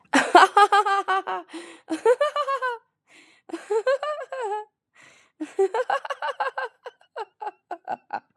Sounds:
Laughter